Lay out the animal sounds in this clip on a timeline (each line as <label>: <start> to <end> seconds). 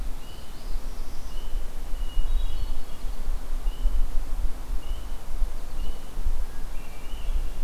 Northern Parula (Setophaga americana): 0.0 to 1.4 seconds
Hermit Thrush (Catharus guttatus): 1.9 to 3.2 seconds
American Goldfinch (Spinus tristis): 5.4 to 6.0 seconds
Hermit Thrush (Catharus guttatus): 6.4 to 7.6 seconds